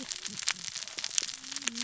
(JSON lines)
{"label": "biophony, cascading saw", "recorder": "SoundTrap 600 or HydroMoth"}